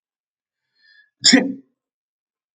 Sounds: Sneeze